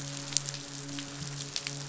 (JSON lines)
{"label": "biophony, midshipman", "recorder": "SoundTrap 500"}